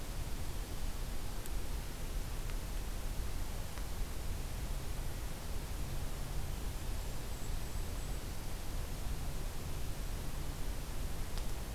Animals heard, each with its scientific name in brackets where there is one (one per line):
Golden-crowned Kinglet (Regulus satrapa)